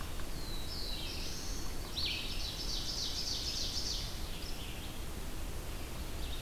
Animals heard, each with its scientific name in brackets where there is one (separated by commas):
Red-eyed Vireo (Vireo olivaceus), Black-throated Blue Warbler (Setophaga caerulescens), Ovenbird (Seiurus aurocapilla)